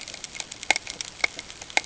{"label": "ambient", "recorder": "HydroMoth"}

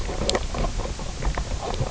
{"label": "biophony, knock croak", "recorder": "SoundTrap 300"}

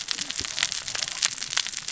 {"label": "biophony, cascading saw", "recorder": "SoundTrap 600 or HydroMoth"}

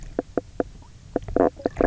{"label": "biophony, knock croak", "recorder": "SoundTrap 300"}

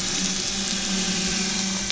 {"label": "anthrophony, boat engine", "recorder": "SoundTrap 500"}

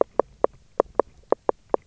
{"label": "biophony, knock", "recorder": "SoundTrap 300"}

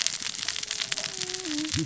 {"label": "biophony, cascading saw", "recorder": "SoundTrap 600 or HydroMoth"}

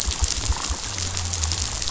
{"label": "biophony", "recorder": "SoundTrap 500"}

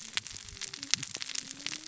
{"label": "biophony, cascading saw", "recorder": "SoundTrap 600 or HydroMoth"}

